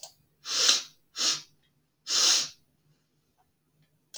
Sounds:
Sniff